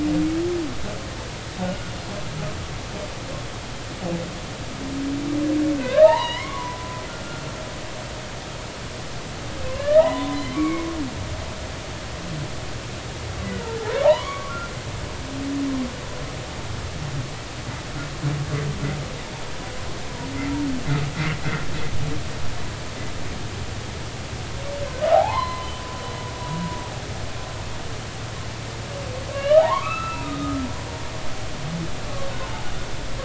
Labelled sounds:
1.6	1.9	humpback whale, 1.4 to 1.5 kHz
5.8	7.4	humpback whale, 0.83 to 4.2 kHz
9.6	10.9	humpback whale, 0.80 to 2.9 kHz
13.5	14.6	humpback whale, 0.80 to 1.5 kHz
25.1	25.7	humpback whale, 0.80 to 4.2 kHz
29.3	30.6	humpback whale, 0.80 to 4.0 kHz
32.5	32.7	humpback whale, 0.80 to 0.93 kHz

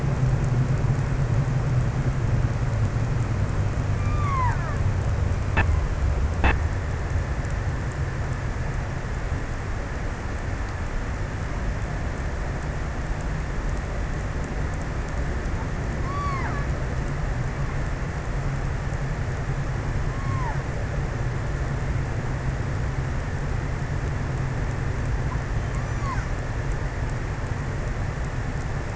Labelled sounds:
3.8	4.7	killer whale, offshore, 0.55 to 2.9 kHz
16.0	17.1	killer whale, offshore, 0.53 to 2.7 kHz
19.8	20.9	killer whale, offshore, 0.45 to 2.5 kHz
25.5	26.7	killer whale, offshore, 0.61 to 3.2 kHz

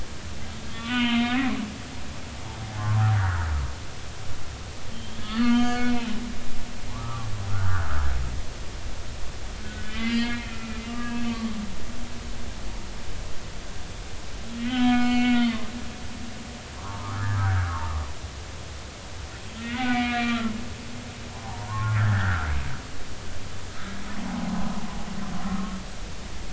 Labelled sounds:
0.7	1.5	humpback whale, 0.90 to 3.9 kHz
2.8	3.0	humpback whale, 0.93 to 1.2 kHz
4.9	6.2	humpback whale, 1.0 to 6.4 kHz
6.9	7.9	humpback whale, 0.80 to 1.7 kHz
9.6	11.6	humpback whale, 0.99 to 4.8 kHz
14.6	15.7	humpback whale, 0.96 to 4.5 kHz
16.8	18.0	humpback whale, 0.83 to 1.9 kHz
19.6	20.6	humpback whale, 1.0 to 2.9 kHz
21.3	22.5	humpback whale, 0.80 to 1.9 kHz
24.2	24.5	humpback whale, 0.80 to 1.0 kHz

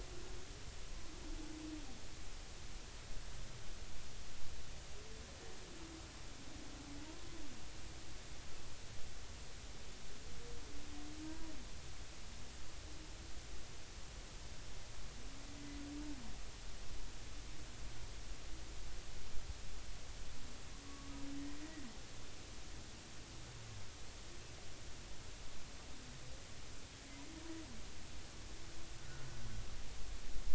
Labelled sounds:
11.2	11.5	humpback whale, 0.90 to 1.0 kHz
20.8	21.1	humpback whale, 1.0 to 1.2 kHz
29.0	29.3	humpback whale, 1.3 to 1.5 kHz

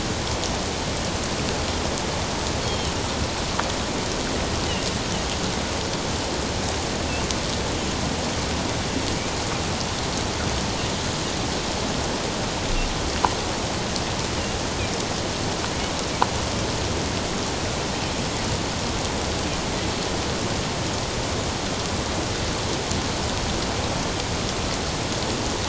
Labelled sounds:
2.6	2.9	Pacific white-sided dolphin, 2.9 to 3.3 kHz

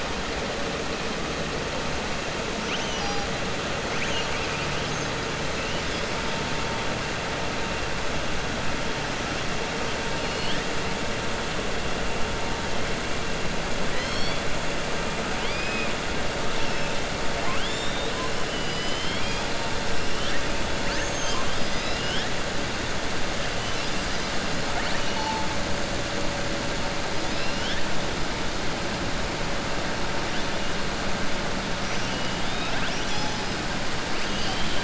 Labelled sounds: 3.9	4.5	killer whale, southern resident, 1.5 to 3.3 kHz
10.2	10.6	killer whale, southern resident, 2.3 to 5.2 kHz
15.3	15.9	killer whale, southern resident, 1.8 to 5.1 kHz
17.3	18.1	killer whale, southern resident, 0.70 to 7.4 kHz
18.4	19.4	killer whale, southern resident, 2.0 to 5.9 kHz
34.2	34.8	killer whale, southern resident, 2.6 to 5.1 kHz

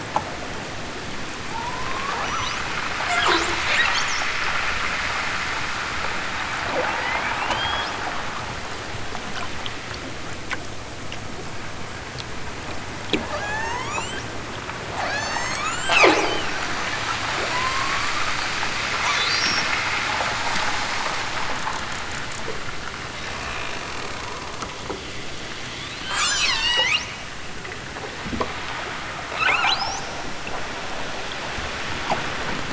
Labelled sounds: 1.4	2.7	killer whale, southern Alaska resident, 0.51 to 8.0 kHz
6.6	8.0	killer whale, southern Alaska resident, 0.32 to 8.0 kHz
13.1	14.3	killer whale, southern Alaska resident, 0.28 to 8.0 kHz
14.8	16.5	killer whale, southern Alaska resident, 0 to 8.0 kHz
17.3	18.1	killer whale, southern Alaska resident, 0.46 to 4.3 kHz
26.0	27.1	killer whale, southern Alaska resident, 0.41 to 8.0 kHz
29.3	30.1	killer whale, southern Alaska resident, 0.23 to 8.0 kHz

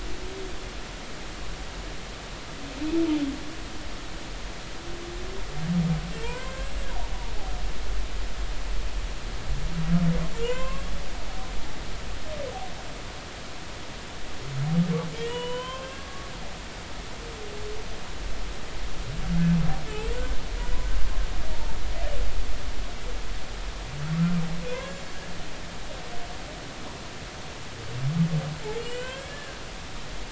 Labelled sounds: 6.2	6.5	humpback whale, 0.86 to 1.1 kHz
10.4	10.8	humpback whale, 0.93 to 2.7 kHz
15.1	16.2	humpback whale, 0.93 to 8.0 kHz
19.9	20.1	humpback whale, 2.5 to 2.8 kHz
24.7	25.1	humpback whale, 1.4 to 7.3 kHz
28.8	30.2	humpback whale, 1.4 to 3.3 kHz

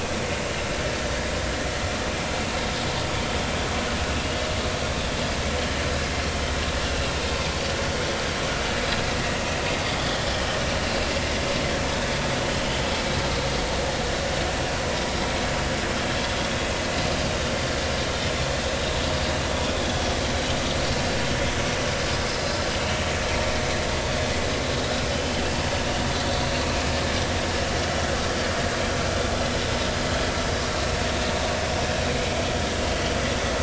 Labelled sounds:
32.1	32.4	vessel noise, 2.1 to 2.3 kHz

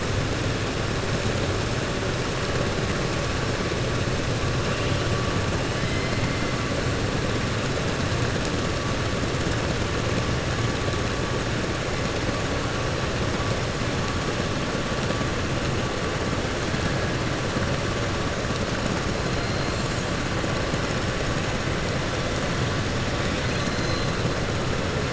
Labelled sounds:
5.7	6.2	killer whale, 1.7 to 3.1 kHz
23.2	24.1	killer whale, 2.0 to 7.1 kHz

